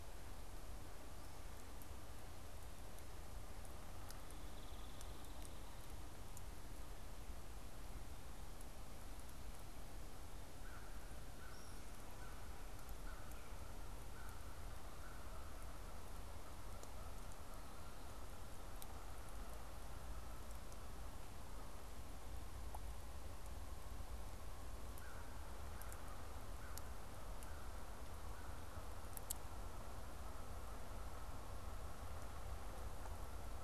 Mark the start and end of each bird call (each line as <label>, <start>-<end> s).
Hairy Woodpecker (Dryobates villosus), 4.2-6.3 s
American Crow (Corvus brachyrhynchos), 10.4-15.8 s
American Crow (Corvus brachyrhynchos), 24.7-28.9 s
Canada Goose (Branta canadensis), 25.5-33.6 s